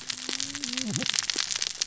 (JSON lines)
{"label": "biophony, cascading saw", "recorder": "SoundTrap 600 or HydroMoth"}